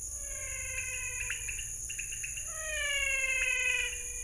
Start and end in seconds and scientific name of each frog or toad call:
0.2	4.2	Leptodactylus podicipinus
0.2	4.2	Physalaemus albonotatus